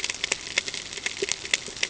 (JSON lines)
{"label": "ambient", "recorder": "HydroMoth"}